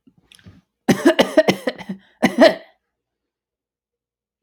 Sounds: Cough